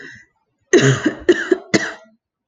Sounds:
Cough